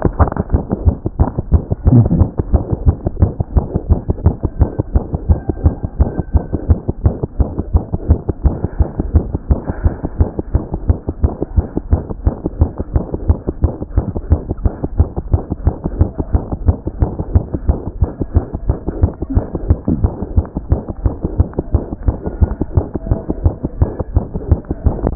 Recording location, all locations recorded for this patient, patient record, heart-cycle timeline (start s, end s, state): aortic valve (AV)
aortic valve (AV)+pulmonary valve (PV)+mitral valve (MV)
#Age: Infant
#Sex: Female
#Height: 57.0 cm
#Weight: 3.9 kg
#Pregnancy status: False
#Murmur: Present
#Murmur locations: aortic valve (AV)+mitral valve (MV)+pulmonary valve (PV)
#Most audible location: pulmonary valve (PV)
#Systolic murmur timing: Holosystolic
#Systolic murmur shape: Plateau
#Systolic murmur grading: I/VI
#Systolic murmur pitch: Low
#Systolic murmur quality: Blowing
#Diastolic murmur timing: Early-diastolic
#Diastolic murmur shape: Decrescendo
#Diastolic murmur grading: I/IV
#Diastolic murmur pitch: High
#Diastolic murmur quality: Harsh
#Outcome: Abnormal
#Campaign: 2014 screening campaign
0.00	12.14	unannotated
12.14	12.24	diastole
12.24	12.32	S1
12.32	12.45	systole
12.45	12.50	S2
12.50	12.60	diastole
12.60	12.69	S1
12.69	12.79	systole
12.79	12.85	S2
12.85	12.93	diastole
12.93	13.02	S1
13.02	13.13	systole
13.13	13.19	S2
13.19	13.28	diastole
13.28	13.37	S1
13.37	13.47	systole
13.47	13.54	S2
13.54	13.62	diastole
13.62	13.72	S1
13.72	13.81	systole
13.81	13.87	S2
13.87	13.96	diastole
13.96	14.05	S1
14.05	14.15	systole
14.15	14.22	S2
14.22	14.30	diastole
14.30	14.39	S1
14.39	14.49	systole
14.49	14.56	S2
14.56	14.65	diastole
14.65	25.15	unannotated